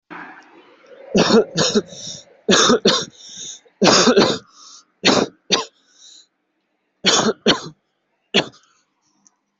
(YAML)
expert_labels:
- quality: good
  cough_type: dry
  dyspnea: false
  wheezing: false
  stridor: false
  choking: false
  congestion: false
  nothing: true
  diagnosis: upper respiratory tract infection
  severity: mild
age: 18
gender: male
respiratory_condition: false
fever_muscle_pain: false
status: COVID-19